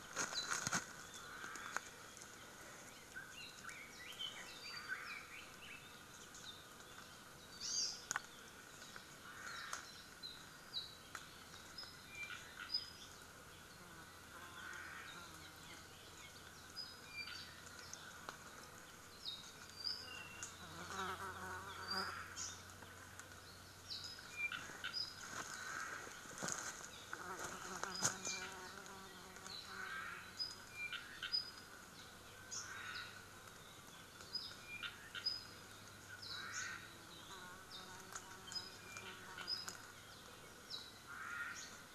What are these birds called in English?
Apapane, Omao, Red-billed Leiothrix